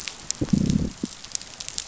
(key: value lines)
label: biophony, growl
recorder: SoundTrap 500